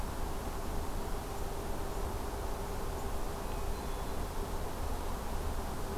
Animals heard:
Hermit Thrush (Catharus guttatus)

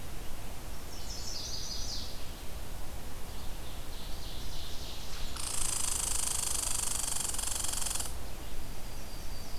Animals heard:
Red-eyed Vireo (Vireo olivaceus), Yellow-rumped Warbler (Setophaga coronata), Chestnut-sided Warbler (Setophaga pensylvanica), Ovenbird (Seiurus aurocapilla), Red Squirrel (Tamiasciurus hudsonicus)

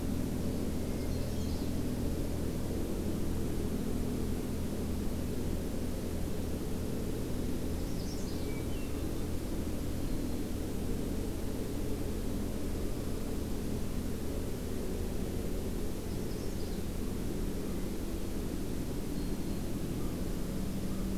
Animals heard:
Hermit Thrush (Catharus guttatus), American Crow (Corvus brachyrhynchos), Black-throated Green Warbler (Setophaga virens), Magnolia Warbler (Setophaga magnolia)

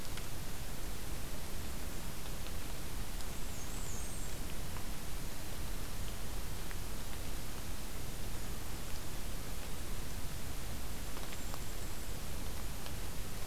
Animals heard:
Black-and-white Warbler (Mniotilta varia), Golden-crowned Kinglet (Regulus satrapa)

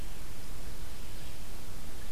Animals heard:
Red-eyed Vireo (Vireo olivaceus)

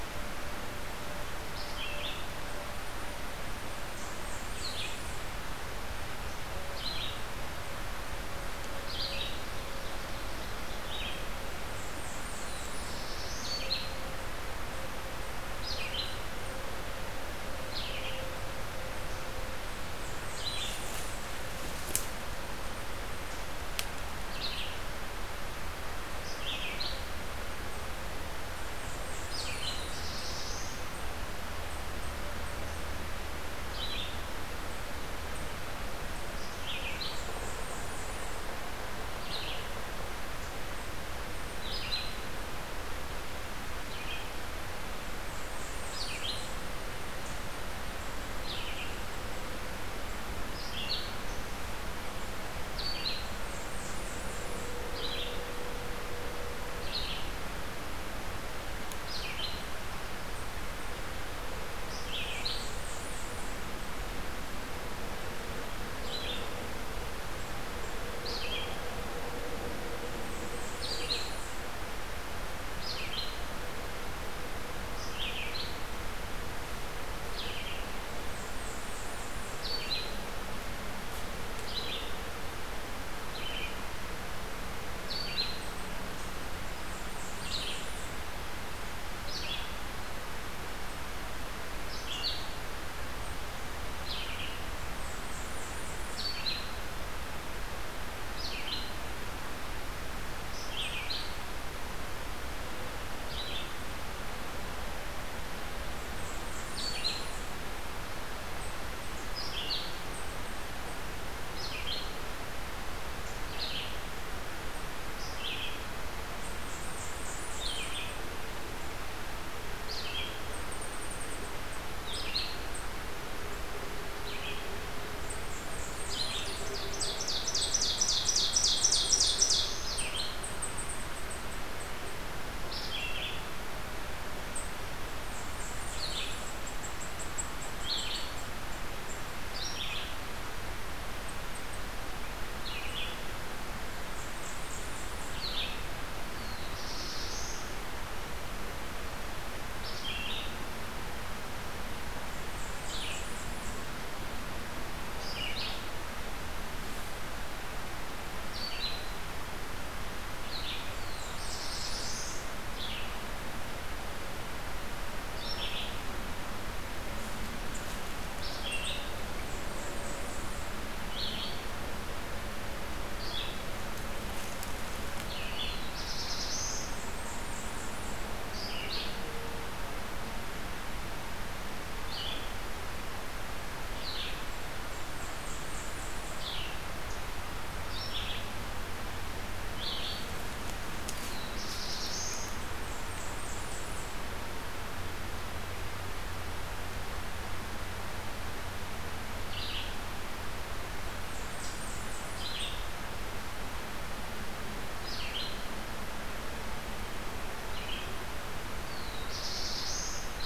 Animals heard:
Black-throated Blue Warbler (Setophaga caerulescens), Ovenbird (Seiurus aurocapilla), Blackburnian Warbler (Setophaga fusca), Red-eyed Vireo (Vireo olivaceus)

